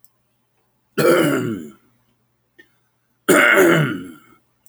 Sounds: Throat clearing